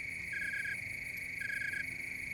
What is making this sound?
Oecanthus rileyi, an orthopteran